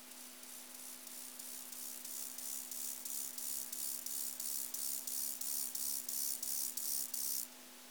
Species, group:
Chorthippus mollis, Orthoptera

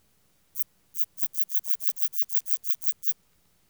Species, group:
Phaneroptera falcata, Orthoptera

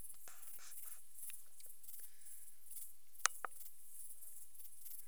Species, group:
Pholidoptera griseoaptera, Orthoptera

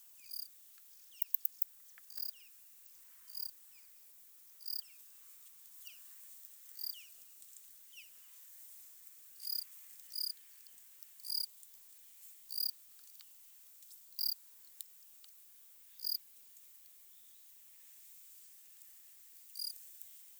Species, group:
Gryllus assimilis, Orthoptera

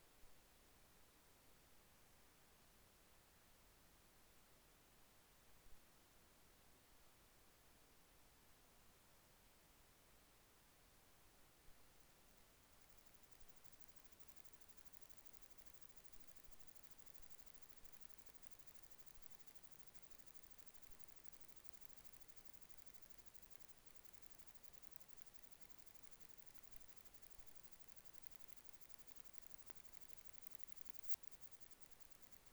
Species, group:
Odontura glabricauda, Orthoptera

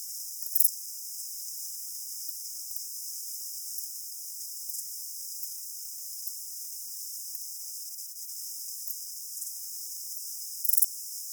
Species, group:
Pachytrachis gracilis, Orthoptera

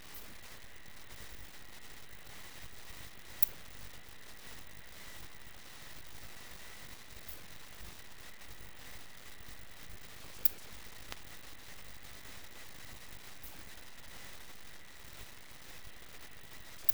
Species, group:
Poecilimon ornatus, Orthoptera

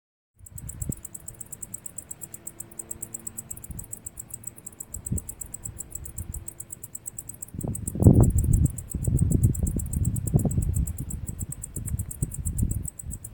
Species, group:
Decticus albifrons, Orthoptera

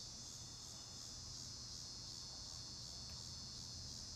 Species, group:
Megatibicen pronotalis, Cicadidae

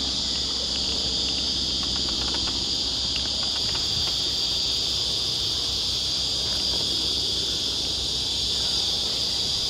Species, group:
Psaltoda plaga, Cicadidae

